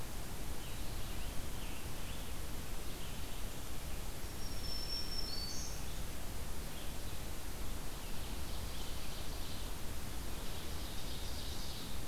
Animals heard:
Scarlet Tanager (Piranga olivacea), Ovenbird (Seiurus aurocapilla), Black-throated Green Warbler (Setophaga virens)

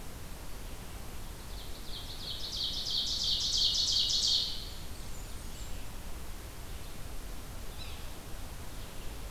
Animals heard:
Red-eyed Vireo (Vireo olivaceus), Ovenbird (Seiurus aurocapilla), Yellow-bellied Sapsucker (Sphyrapicus varius), Blackburnian Warbler (Setophaga fusca)

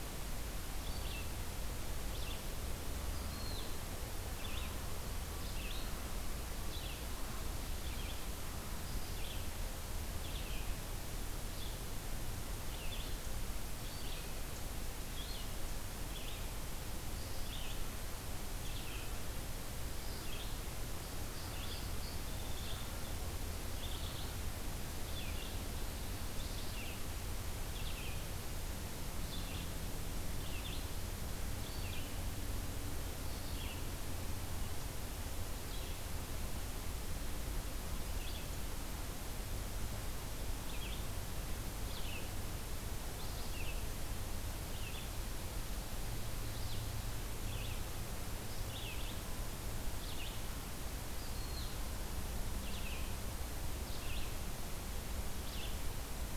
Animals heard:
Song Sparrow (Melospiza melodia), Red-eyed Vireo (Vireo olivaceus)

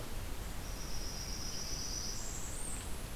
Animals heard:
Blackburnian Warbler (Setophaga fusca)

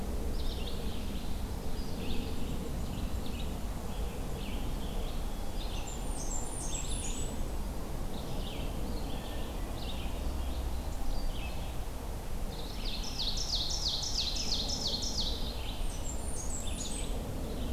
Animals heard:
Ovenbird (Seiurus aurocapilla), Red-eyed Vireo (Vireo olivaceus), Blackburnian Warbler (Setophaga fusca)

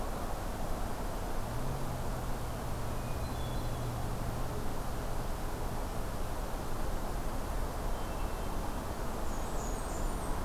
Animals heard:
Blackburnian Warbler (Setophaga fusca), Hermit Thrush (Catharus guttatus)

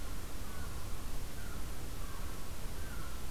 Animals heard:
American Herring Gull (Larus smithsonianus)

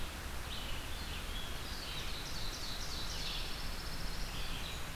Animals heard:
Ovenbird (Seiurus aurocapilla), Pine Warbler (Setophaga pinus), Red-eyed Vireo (Vireo olivaceus)

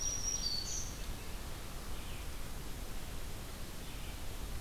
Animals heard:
Ovenbird (Seiurus aurocapilla), Black-throated Green Warbler (Setophaga virens), Red-eyed Vireo (Vireo olivaceus)

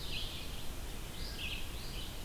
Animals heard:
Red-eyed Vireo (Vireo olivaceus)

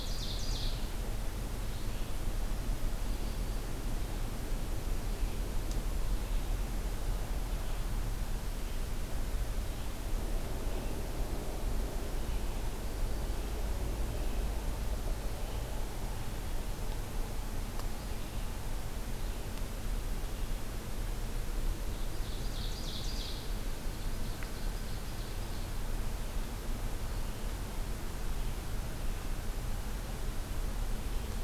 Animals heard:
Ovenbird (Seiurus aurocapilla), Red-eyed Vireo (Vireo olivaceus)

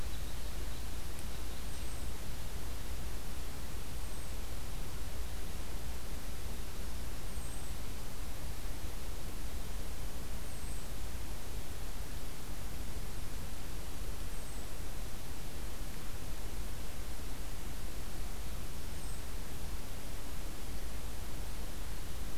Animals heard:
Red Crossbill (Loxia curvirostra)

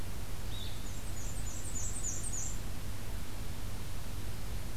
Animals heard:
Black-and-white Warbler (Mniotilta varia), Blue-headed Vireo (Vireo solitarius)

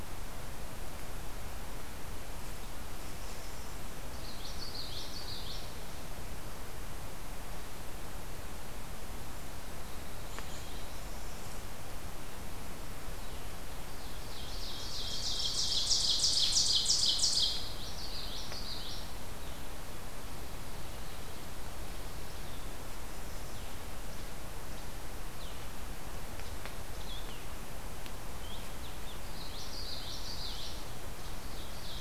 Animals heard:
Blackburnian Warbler (Setophaga fusca), Ovenbird (Seiurus aurocapilla), Blue-headed Vireo (Vireo solitarius), Least Flycatcher (Empidonax minimus), Common Yellowthroat (Geothlypis trichas)

